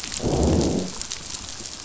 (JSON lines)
{"label": "biophony, growl", "recorder": "SoundTrap 500"}